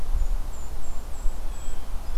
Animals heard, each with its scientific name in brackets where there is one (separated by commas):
Blue Jay (Cyanocitta cristata), Golden-crowned Kinglet (Regulus satrapa)